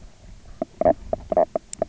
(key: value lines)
label: biophony, knock croak
recorder: SoundTrap 300